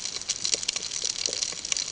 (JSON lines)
{"label": "ambient", "recorder": "HydroMoth"}